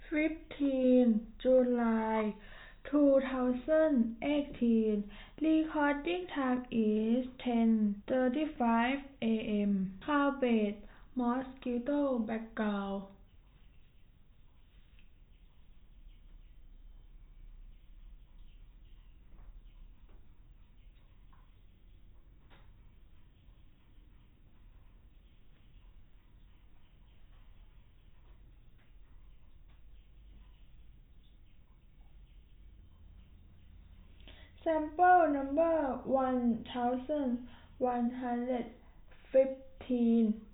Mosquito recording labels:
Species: no mosquito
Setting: cup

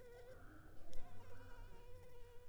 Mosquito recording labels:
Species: Anopheles arabiensis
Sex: female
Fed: unfed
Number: one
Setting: cup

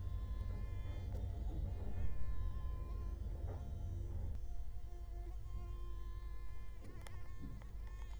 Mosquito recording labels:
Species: Culex quinquefasciatus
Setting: cup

